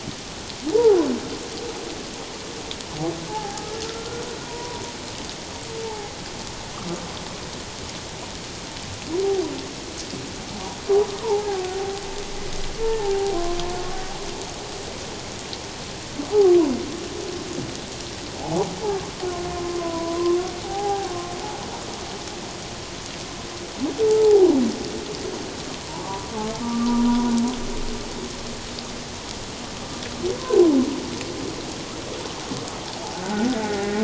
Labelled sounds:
0.7	1.0	humpback whale, 0.78 to 1.0 kHz
3.3	4.8	humpback whale, 0.78 to 1.5 kHz
5.8	6.1	humpback whale, 0.78 to 0.94 kHz
11.1	11.6	humpback whale, 0.78 to 1.2 kHz
12.8	13.4	humpback whale, 0.78 to 0.97 kHz
16.4	16.7	humpback whale, 0.91 to 1.2 kHz
18.4	18.7	humpback whale, 0.78 to 1.0 kHz
19.6	21.3	humpback whale, 0.78 to 1.1 kHz
24.0	24.5	humpback whale, 0.78 to 0.97 kHz
26.3	27.3	humpback whale, 0.91 to 1.3 kHz
33.1	34.0	humpback whale, 0.78 to 1.9 kHz

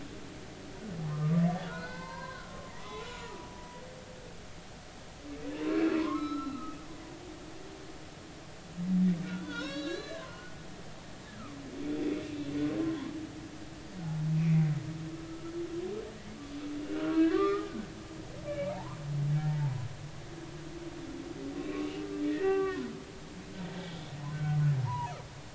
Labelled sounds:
1.0	3.5	humpback whale, 0.83 to 4.3 kHz
5.7	6.8	humpback whale, 0.93 to 5.3 kHz
9.2	10.5	humpback whale, 0.90 to 5.7 kHz
11.9	12.2	humpback whale, 3.3 to 3.6 kHz
14.3	15.5	humpback whale, 1.2 to 2.6 kHz
16.9	17.7	humpback whale, 0.99 to 2.7 kHz
18.5	19.9	humpback whale, 0.80 to 2.4 kHz
21.6	21.9	humpback whale, 1.0 to 1.2 kHz
22.3	22.9	humpback whale, 0.80 to 2.8 kHz
24.3	25.1	humpback whale, 0.80 to 1.6 kHz

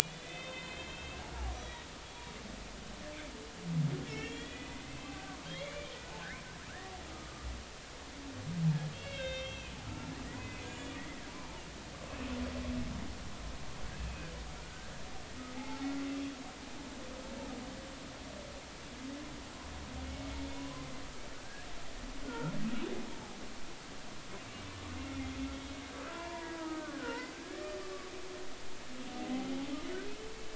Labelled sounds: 0.1	1.2	humpback whale, 2.0 to 3.7 kHz
1.5	1.9	humpback whale, 3.7 to 4.0 kHz
4.1	5.9	humpback whale, 1.5 to 3.6 kHz
7.1	7.5	humpback whale, 1.2 to 1.3 kHz
8.9	10.9	humpback whale, 1.2 to 6.9 kHz
11.3	11.6	humpback whale, 0.83 to 1.1 kHz
14.1	14.3	humpback whale, 2.4 to 2.6 kHz
14.6	14.9	humpback whale, 1.4 to 1.6 kHz
15.5	15.9	humpback whale, 0.80 to 0.93 kHz
20.6	20.9	humpback whale, 0.96 to 1.2 kHz
22.2	22.5	humpback whale, 1.2 to 1.5 kHz
23.1	23.4	humpback whale, 0.80 to 0.96 kHz
26.1	27.9	humpback whale, 0.86 to 2.1 kHz
29.2	29.5	humpback whale, 0.80 to 0.83 kHz

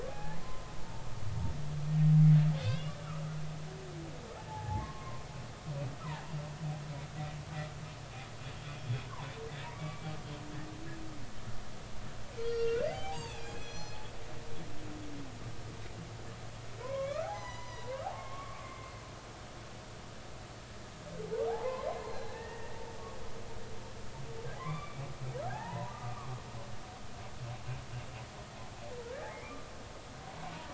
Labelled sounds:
0.1	1.0	humpback whale, 0.80 to 1.8 kHz
2.6	3.0	humpback whale, 2.5 to 5.4 kHz
4.5	5.3	humpback whale, 0.80 to 1.1 kHz
8.8	9.0	humpback whale, 3.2 to 3.4 kHz
9.7	11.0	humpback whale, 1.1 to 2.4 kHz
12.4	14.1	humpback whale, 0.80 to 6.0 kHz
16.8	18.9	humpback whale, 0.80 to 6.2 kHz
21.5	22.8	humpback whale, 0.80 to 4.3 kHz
24.5	26.4	humpback whale, 0.80 to 3.6 kHz
29.3	29.7	humpback whale, 1.1 to 2.5 kHz

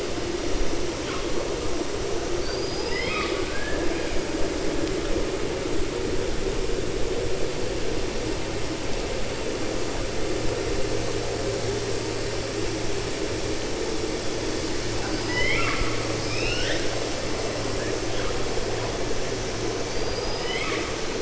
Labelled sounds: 2.3	4.1	killer whale, 0.72 to 5.1 kHz
14.9	16.9	killer whale, 0.80 to 6.1 kHz
19.8	20.9	killer whale, 1.0 to 5.1 kHz

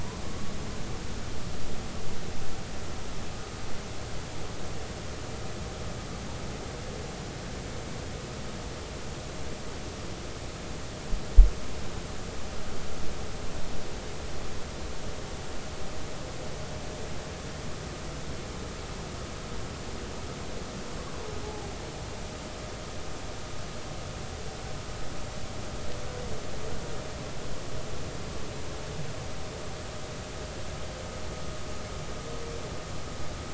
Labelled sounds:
0.2	0.5	humpback whale, 1.0 to 1.2 kHz
21.4	21.7	humpback whale, 0.80 to 0.90 kHz

